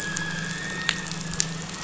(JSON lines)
{"label": "anthrophony, boat engine", "recorder": "SoundTrap 500"}